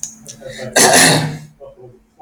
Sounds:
Throat clearing